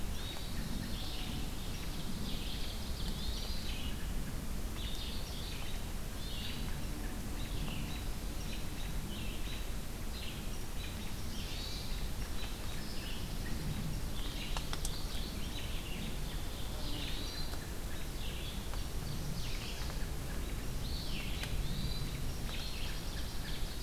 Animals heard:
Chestnut-sided Warbler (Setophaga pensylvanica), Red-eyed Vireo (Vireo olivaceus), Pine Warbler (Setophaga pinus), Ovenbird (Seiurus aurocapilla), Hermit Thrush (Catharus guttatus)

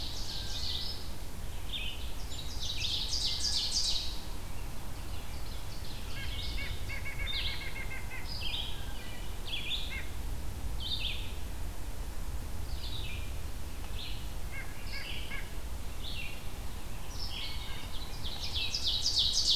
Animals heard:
Wood Thrush (Hylocichla mustelina), Ovenbird (Seiurus aurocapilla), Red-eyed Vireo (Vireo olivaceus), White-breasted Nuthatch (Sitta carolinensis)

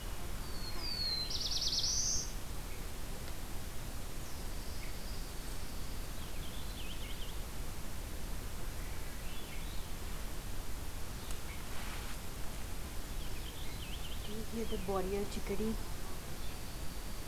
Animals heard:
Purple Finch (Haemorhous purpureus), Swainson's Thrush (Catharus ustulatus), Black-throated Blue Warbler (Setophaga caerulescens), Dark-eyed Junco (Junco hyemalis)

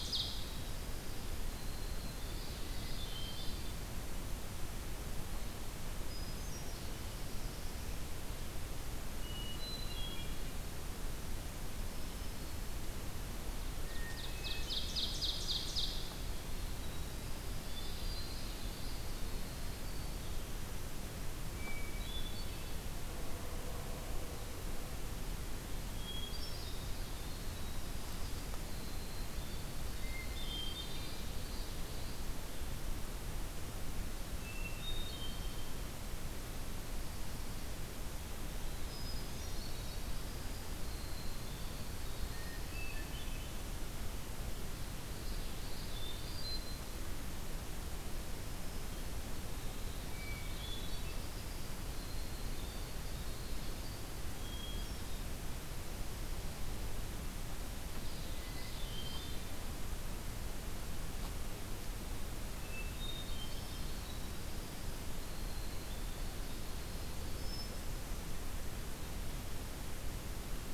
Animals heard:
Ovenbird (Seiurus aurocapilla), Winter Wren (Troglodytes hiemalis), Hermit Thrush (Catharus guttatus), Common Yellowthroat (Geothlypis trichas)

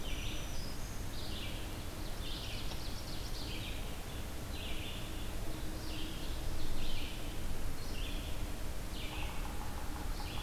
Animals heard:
Ovenbird (Seiurus aurocapilla), Red-eyed Vireo (Vireo olivaceus), Yellow-bellied Sapsucker (Sphyrapicus varius), Black-throated Green Warbler (Setophaga virens)

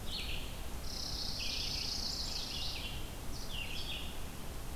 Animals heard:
Chimney Swift (Chaetura pelagica), Red-eyed Vireo (Vireo olivaceus), Chipping Sparrow (Spizella passerina)

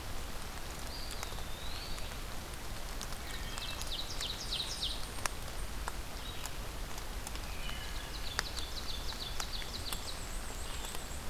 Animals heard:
Wood Thrush (Hylocichla mustelina), Black-and-white Warbler (Mniotilta varia), Eastern Wood-Pewee (Contopus virens), Ovenbird (Seiurus aurocapilla), unidentified call

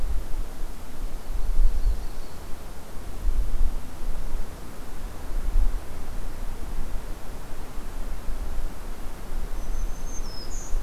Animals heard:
Yellow-rumped Warbler (Setophaga coronata), Black-throated Green Warbler (Setophaga virens)

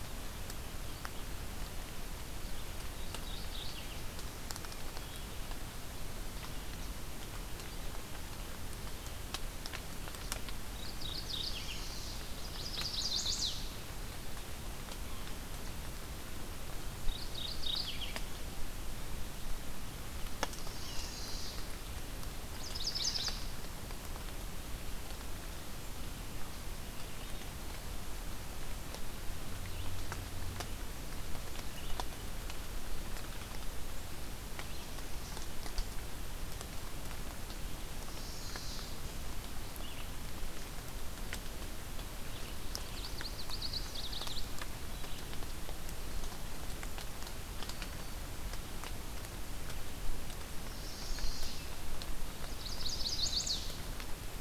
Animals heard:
Red-eyed Vireo (Vireo olivaceus), Chestnut-sided Warbler (Setophaga pensylvanica), Yellow-rumped Warbler (Setophaga coronata), Mourning Warbler (Geothlypis philadelphia)

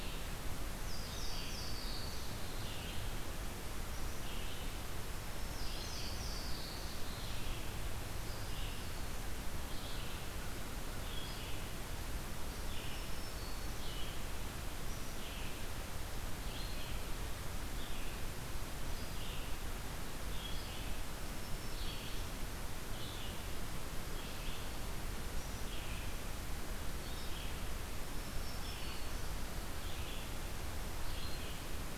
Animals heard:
Black-throated Green Warbler (Setophaga virens), American Crow (Corvus brachyrhynchos), Red-eyed Vireo (Vireo olivaceus), Louisiana Waterthrush (Parkesia motacilla)

